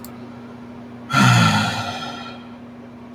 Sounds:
Sigh